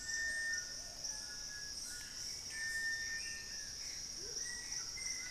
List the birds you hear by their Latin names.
Crypturellus cinereus, Turdus hauxwelli, Ramphastos tucanus, Patagioenas plumbea, Lipaugus vociferans, Momotus momota, Formicarius analis